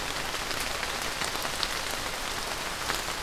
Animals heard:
forest ambience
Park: Marsh-Billings-Rockefeller National Historical Park